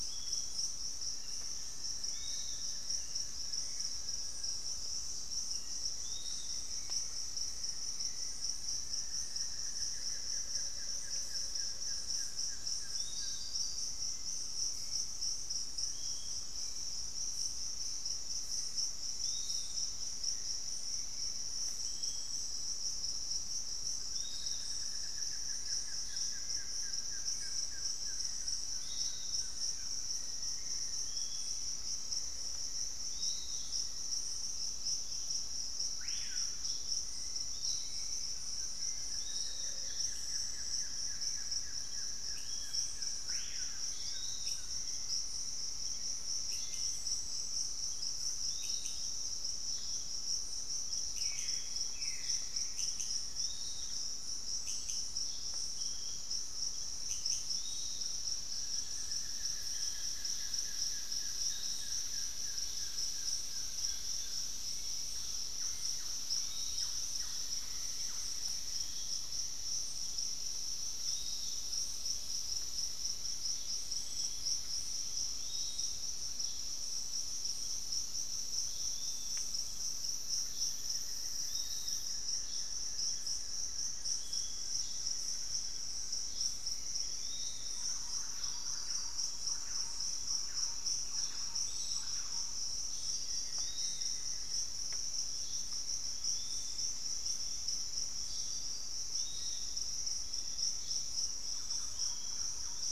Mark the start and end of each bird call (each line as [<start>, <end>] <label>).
[0.00, 47.20] Hauxwell's Thrush (Turdus hauxwelli)
[0.00, 102.92] Piratic Flycatcher (Legatus leucophaius)
[0.80, 4.70] Buff-throated Woodcreeper (Xiphorhynchus guttatus)
[5.40, 7.90] Black-faced Antthrush (Formicarius analis)
[8.20, 13.70] Buff-throated Woodcreeper (Xiphorhynchus guttatus)
[9.90, 12.00] Amazonian Motmot (Momotus momota)
[23.90, 30.30] Buff-throated Woodcreeper (Xiphorhynchus guttatus)
[29.40, 34.80] Black-faced Antthrush (Formicarius analis)
[35.70, 36.70] Screaming Piha (Lipaugus vociferans)
[38.40, 44.90] Buff-throated Woodcreeper (Xiphorhynchus guttatus)
[42.00, 57.90] unidentified bird
[43.10, 44.20] Screaming Piha (Lipaugus vociferans)
[51.30, 53.80] Buff-throated Woodcreeper (Xiphorhynchus guttatus)
[58.40, 64.70] Buff-throated Woodcreeper (Xiphorhynchus guttatus)
[64.50, 68.20] Hauxwell's Thrush (Turdus hauxwelli)
[65.10, 69.40] Thrush-like Wren (Campylorhynchus turdinus)
[67.30, 69.10] unidentified bird
[80.40, 85.90] Buff-throated Woodcreeper (Xiphorhynchus guttatus)
[83.50, 86.00] Black-faced Antthrush (Formicarius analis)
[86.50, 88.10] unidentified bird
[87.60, 93.00] Thrush-like Wren (Campylorhynchus turdinus)
[90.90, 93.00] Pygmy Antwren (Myrmotherula brachyura)
[93.20, 94.70] unidentified bird
[99.80, 102.92] Gray Antwren (Myrmotherula menetriesii)
[101.40, 102.92] Thrush-like Wren (Campylorhynchus turdinus)